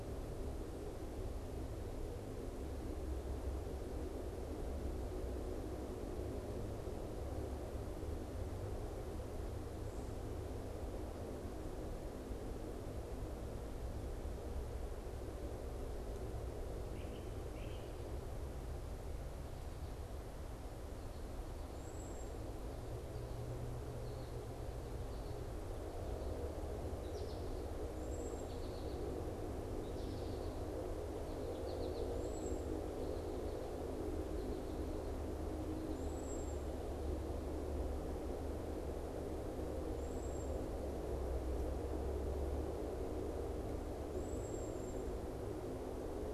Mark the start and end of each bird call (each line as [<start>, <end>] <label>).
[16.84, 17.94] Great Crested Flycatcher (Myiarchus crinitus)
[21.54, 32.74] Cedar Waxwing (Bombycilla cedrorum)
[23.64, 32.74] American Goldfinch (Spinus tristis)
[35.64, 46.33] Cedar Waxwing (Bombycilla cedrorum)